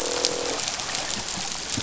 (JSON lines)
{"label": "biophony, croak", "recorder": "SoundTrap 500"}